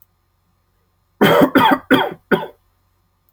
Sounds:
Cough